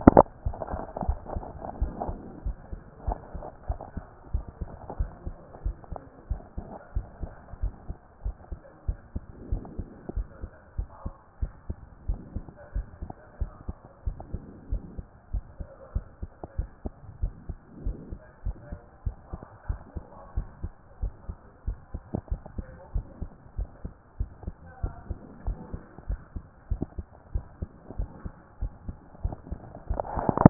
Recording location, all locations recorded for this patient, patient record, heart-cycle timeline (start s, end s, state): pulmonary valve (PV)
aortic valve (AV)+pulmonary valve (PV)+tricuspid valve (TV)+mitral valve (MV)
#Age: Child
#Sex: Male
#Height: 148.0 cm
#Weight: 54.7 kg
#Pregnancy status: False
#Murmur: Absent
#Murmur locations: nan
#Most audible location: nan
#Systolic murmur timing: nan
#Systolic murmur shape: nan
#Systolic murmur grading: nan
#Systolic murmur pitch: nan
#Systolic murmur quality: nan
#Diastolic murmur timing: nan
#Diastolic murmur shape: nan
#Diastolic murmur grading: nan
#Diastolic murmur pitch: nan
#Diastolic murmur quality: nan
#Outcome: Abnormal
#Campaign: 2014 screening campaign
0.18	0.44	diastole
0.44	0.58	S1
0.58	0.72	systole
0.72	0.82	S2
0.82	1.06	diastole
1.06	1.20	S1
1.20	1.34	systole
1.34	1.46	S2
1.46	1.78	diastole
1.78	1.94	S1
1.94	2.10	systole
2.10	2.20	S2
2.20	2.44	diastole
2.44	2.56	S1
2.56	2.70	systole
2.70	2.80	S2
2.80	3.06	diastole
3.06	3.18	S1
3.18	3.32	systole
3.32	3.42	S2
3.42	3.68	diastole
3.68	3.80	S1
3.80	3.94	systole
3.94	4.04	S2
4.04	4.32	diastole
4.32	4.46	S1
4.46	4.60	systole
4.60	4.70	S2
4.70	4.98	diastole
4.98	5.12	S1
5.12	5.26	systole
5.26	5.36	S2
5.36	5.64	diastole
5.64	5.76	S1
5.76	5.90	systole
5.90	6.00	S2
6.00	6.30	diastole
6.30	6.42	S1
6.42	6.58	systole
6.58	6.68	S2
6.68	6.96	diastole
6.96	7.08	S1
7.08	7.22	systole
7.22	7.32	S2
7.32	7.62	diastole
7.62	7.74	S1
7.74	7.88	systole
7.88	7.96	S2
7.96	8.24	diastole
8.24	8.36	S1
8.36	8.50	systole
8.50	8.60	S2
8.60	8.88	diastole
8.88	9.00	S1
9.00	9.14	systole
9.14	9.24	S2
9.24	9.50	diastole
9.50	9.64	S1
9.64	9.78	systole
9.78	9.88	S2
9.88	10.16	diastole
10.16	10.28	S1
10.28	10.42	systole
10.42	10.50	S2
10.50	10.78	diastole
10.78	10.90	S1
10.90	11.04	systole
11.04	11.14	S2
11.14	11.42	diastole
11.42	11.54	S1
11.54	11.68	systole
11.68	11.78	S2
11.78	12.06	diastole
12.06	12.20	S1
12.20	12.34	systole
12.34	12.44	S2
12.44	12.74	diastole
12.74	12.86	S1
12.86	13.00	systole
13.00	13.10	S2
13.10	13.40	diastole
13.40	13.52	S1
13.52	13.66	systole
13.66	13.76	S2
13.76	14.06	diastole
14.06	14.18	S1
14.18	14.32	systole
14.32	14.42	S2
14.42	14.70	diastole
14.70	14.82	S1
14.82	14.96	systole
14.96	15.06	S2
15.06	15.32	diastole
15.32	15.44	S1
15.44	15.58	systole
15.58	15.68	S2
15.68	15.94	diastole
15.94	16.06	S1
16.06	16.20	systole
16.20	16.30	S2
16.30	16.58	diastole
16.58	16.70	S1
16.70	16.84	systole
16.84	16.94	S2
16.94	17.22	diastole
17.22	17.34	S1
17.34	17.48	systole
17.48	17.58	S2
17.58	17.84	diastole
17.84	17.98	S1
17.98	18.10	systole
18.10	18.20	S2
18.20	18.46	diastole
18.46	18.56	S1
18.56	18.70	systole
18.70	18.80	S2
18.80	19.06	diastole
19.06	19.16	S1
19.16	19.30	systole
19.30	19.40	S2
19.40	19.68	diastole
19.68	19.80	S1
19.80	19.96	systole
19.96	20.06	S2
20.06	20.36	diastole
20.36	20.48	S1
20.48	20.62	systole
20.62	20.72	S2
20.72	21.02	diastole
21.02	21.14	S1
21.14	21.28	systole
21.28	21.38	S2
21.38	21.66	diastole
21.66	21.78	S1
21.78	21.92	systole
21.92	22.02	S2
22.02	22.30	diastole
22.30	22.42	S1
22.42	22.56	systole
22.56	22.66	S2
22.66	22.94	diastole
22.94	23.06	S1
23.06	23.20	systole
23.20	23.30	S2
23.30	23.58	diastole
23.58	23.70	S1
23.70	23.84	systole
23.84	23.92	S2
23.92	24.20	diastole
24.20	24.30	S1
24.30	24.44	systole
24.44	24.54	S2
24.54	24.82	diastole
24.82	24.94	S1
24.94	25.08	systole
25.08	25.18	S2
25.18	25.46	diastole
25.46	25.58	S1
25.58	25.72	systole
25.72	25.82	S2
25.82	26.08	diastole
26.08	26.20	S1
26.20	26.34	systole
26.34	26.44	S2
26.44	26.70	diastole
26.70	26.82	S1
26.82	26.96	systole
26.96	27.06	S2
27.06	27.34	diastole
27.34	27.46	S1
27.46	27.60	systole
27.60	27.70	S2
27.70	27.98	diastole
27.98	28.10	S1
28.10	28.24	systole
28.24	28.32	S2
28.32	28.60	diastole
28.60	28.72	S1
28.72	28.86	systole
28.86	28.96	S2
28.96	29.22	diastole
29.22	29.36	S1
29.36	29.50	systole
29.50	29.60	S2
29.60	29.90	diastole
29.90	30.10	S1
30.10	30.36	systole
30.36	30.50	S2